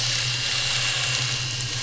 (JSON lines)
{"label": "anthrophony, boat engine", "recorder": "SoundTrap 500"}